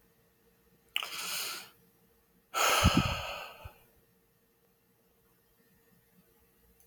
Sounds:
Sigh